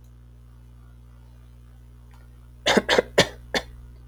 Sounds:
Cough